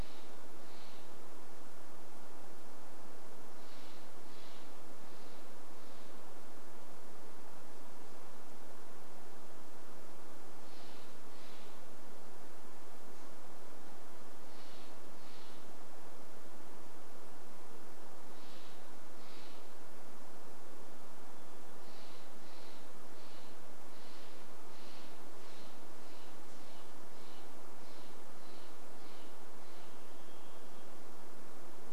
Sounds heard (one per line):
Varied Thrush song
Steller's Jay call